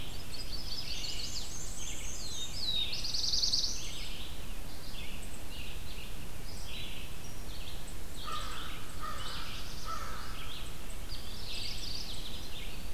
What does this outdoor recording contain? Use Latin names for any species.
Vireo olivaceus, Setophaga pensylvanica, Mniotilta varia, Setophaga caerulescens, Corvus brachyrhynchos, Geothlypis philadelphia